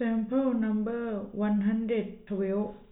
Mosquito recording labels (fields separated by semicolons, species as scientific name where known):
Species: no mosquito; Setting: cup